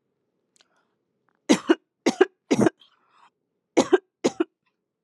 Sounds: Cough